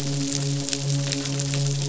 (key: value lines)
label: biophony, midshipman
recorder: SoundTrap 500